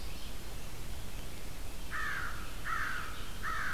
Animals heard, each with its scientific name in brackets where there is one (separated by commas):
American Crow (Corvus brachyrhynchos), Red-eyed Vireo (Vireo olivaceus)